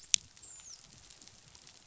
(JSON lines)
{"label": "biophony, dolphin", "recorder": "SoundTrap 500"}